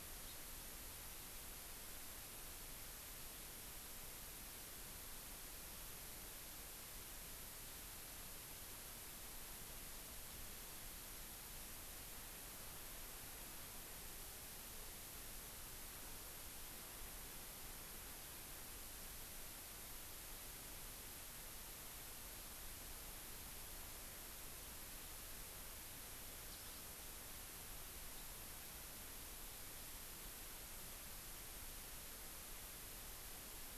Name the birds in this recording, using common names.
Hawaii Amakihi